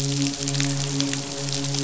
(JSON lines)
{"label": "biophony, midshipman", "recorder": "SoundTrap 500"}